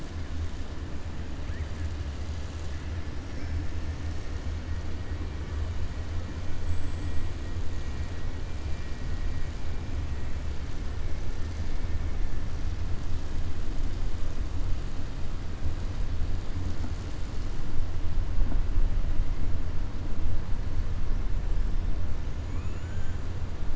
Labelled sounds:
3.2	3.6	killer whale, southern resident, 4.6 to 6.2 kHz
6.5	7.2	killer whale, southern resident, 6.8 to 8.0 kHz

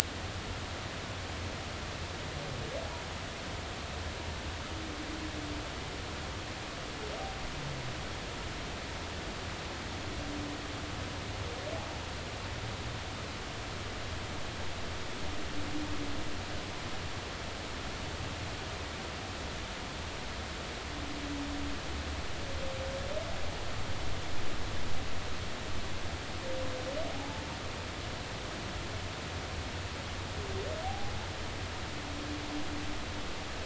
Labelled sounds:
27.1	27.4	humpback whale, 0.80 to 0.96 kHz
30.8	31.1	humpback whale, 0.80 to 0.86 kHz

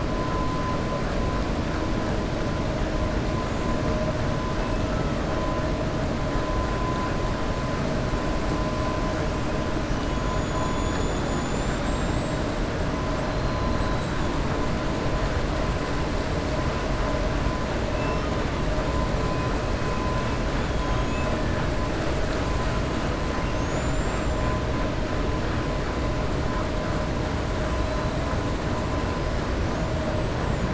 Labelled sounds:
20.8	21.3	killer whale, 2.5 to 3.9 kHz
23.5	24.4	killer whale, 5.8 to 7.9 kHz

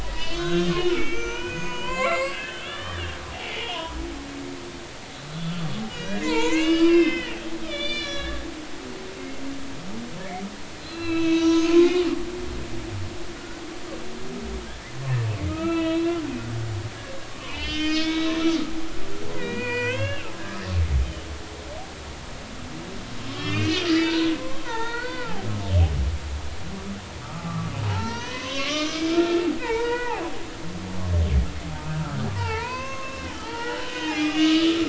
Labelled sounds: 0.0	3.9	humpback whale, 0.93 to 7.8 kHz
5.9	8.4	humpback whale, 0.83 to 6.6 kHz
10.8	12.2	humpback whale, 0.93 to 6.4 kHz
13.4	13.6	humpback whale, 1.4 to 1.5 kHz
14.7	14.9	humpback whale, 1.6 to 1.8 kHz
15.5	16.2	humpback whale, 0.96 to 4.1 kHz
17.4	18.3	humpback whale, 0.86 to 5.3 kHz
19.3	20.3	humpback whale, 0.93 to 4.5 kHz
23.3	24.3	humpback whale, 0.86 to 5.0 kHz
24.6	25.5	humpback whale, 0.80 to 4.6 kHz
27.2	30.2	humpback whale, 0.80 to 7.1 kHz
32.3	34.8	humpback whale, 0.80 to 6.5 kHz

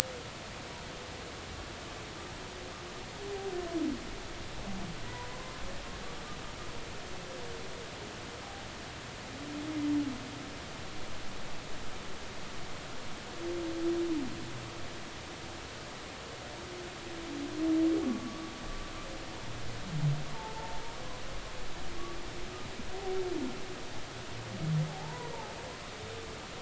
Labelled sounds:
18.0	18.5	humpback whale, 1.1 to 1.2 kHz
20.3	20.8	humpback whale, 0.83 to 0.99 kHz
24.9	25.3	humpback whale, 0.80 to 1.0 kHz

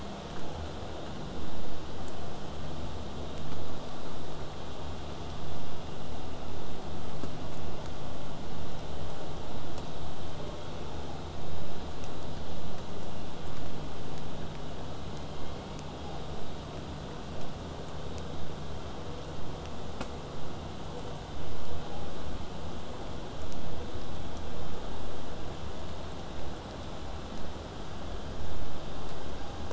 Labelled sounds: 15.1	16.2	killer whale, southern resident, J pod, call S01, 0.43 to 3.5 kHz

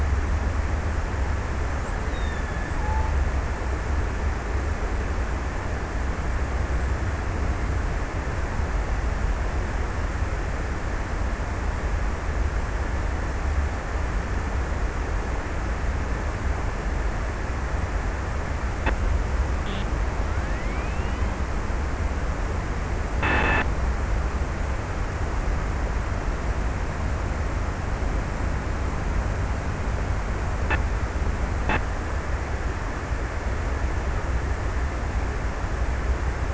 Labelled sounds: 1.6	4.1	killer whale, Bigg's (transient), 1.5 to 4.5 kHz

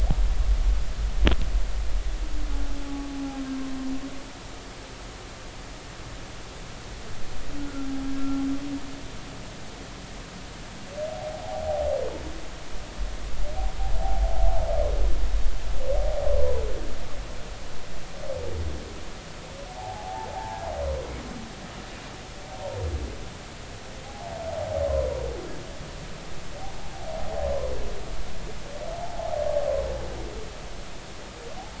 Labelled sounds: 2.8	3.1	humpback whale, 0.80 to 0.90 kHz
7.6	7.9	humpback whale, 1.3 to 1.5 kHz
11.1	11.9	humpback whale, 0.80 to 0.90 kHz
15.0	15.3	humpback whale, 0.80 to 0.90 kHz
19.8	20.6	humpback whale, 0.80 to 1.0 kHz
24.0	24.3	humpback whale, 0.80 to 0.93 kHz
24.9	25.2	humpback whale, 0.93 to 1.1 kHz
30.0	30.3	humpback whale, 0.80 to 0.93 kHz

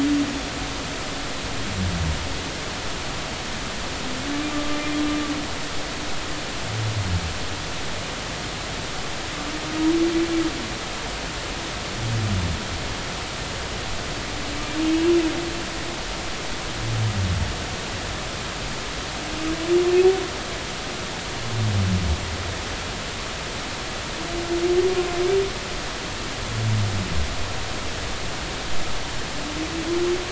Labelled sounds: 4.5	4.8	humpback whale, 1.15 to 1.25 kHz

